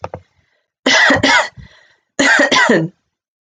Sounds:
Cough